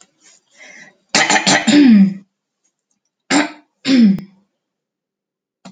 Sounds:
Throat clearing